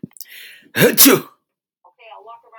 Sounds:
Sneeze